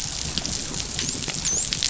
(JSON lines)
{"label": "biophony, dolphin", "recorder": "SoundTrap 500"}